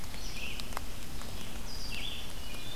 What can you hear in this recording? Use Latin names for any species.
Vireo olivaceus, Junco hyemalis